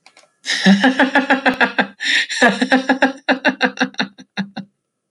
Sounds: Laughter